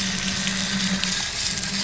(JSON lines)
{"label": "anthrophony, boat engine", "recorder": "SoundTrap 500"}